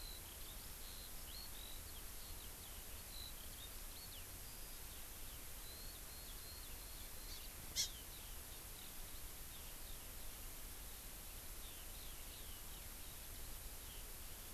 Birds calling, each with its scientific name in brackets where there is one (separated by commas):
Eurasian Skylark (Alauda arvensis), Hawaii Amakihi (Chlorodrepanis virens)